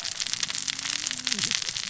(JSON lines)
{"label": "biophony, cascading saw", "recorder": "SoundTrap 600 or HydroMoth"}